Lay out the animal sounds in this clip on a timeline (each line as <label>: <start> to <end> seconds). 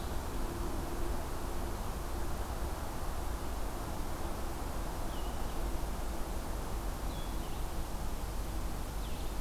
Blue-headed Vireo (Vireo solitarius): 5.0 to 9.4 seconds